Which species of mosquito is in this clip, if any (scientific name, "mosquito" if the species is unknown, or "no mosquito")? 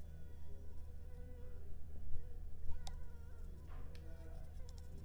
Anopheles arabiensis